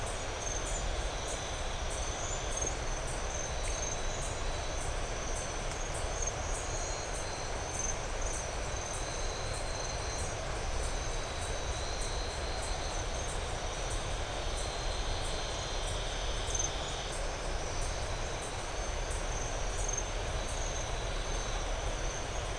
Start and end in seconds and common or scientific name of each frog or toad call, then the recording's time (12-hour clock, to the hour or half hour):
none
~7pm